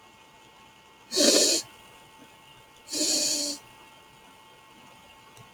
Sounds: Sniff